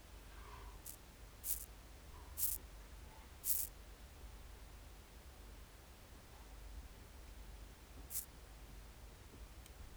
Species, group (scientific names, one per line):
Chorthippus corsicus
Orthoptera